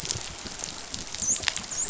{"label": "biophony, dolphin", "recorder": "SoundTrap 500"}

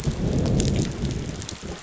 {"label": "biophony, growl", "recorder": "SoundTrap 500"}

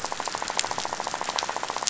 {"label": "biophony, rattle", "recorder": "SoundTrap 500"}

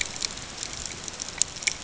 {"label": "ambient", "recorder": "HydroMoth"}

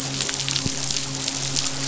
{"label": "biophony, midshipman", "recorder": "SoundTrap 500"}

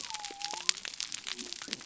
{"label": "biophony", "recorder": "SoundTrap 300"}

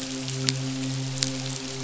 {"label": "biophony, midshipman", "recorder": "SoundTrap 500"}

